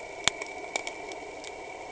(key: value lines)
label: anthrophony, boat engine
recorder: HydroMoth